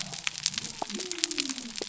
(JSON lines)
{"label": "biophony", "recorder": "SoundTrap 300"}